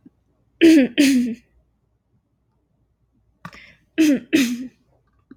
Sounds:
Throat clearing